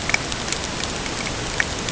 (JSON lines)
{"label": "ambient", "recorder": "HydroMoth"}